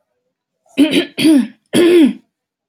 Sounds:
Throat clearing